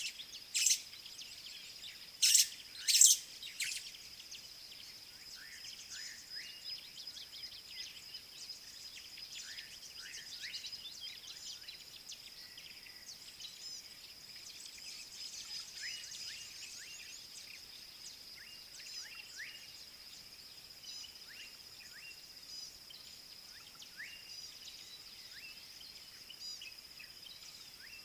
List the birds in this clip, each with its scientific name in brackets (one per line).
Gray-backed Camaroptera (Camaroptera brevicaudata)
White-browed Sparrow-Weaver (Plocepasser mahali)
Slate-colored Boubou (Laniarius funebris)